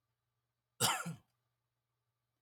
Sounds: Cough